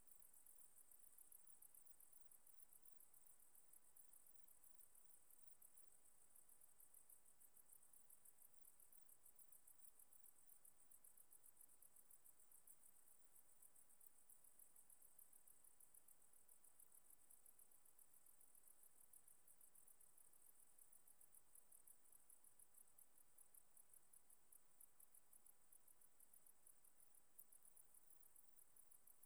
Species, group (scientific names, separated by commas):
Platycleis albopunctata, Orthoptera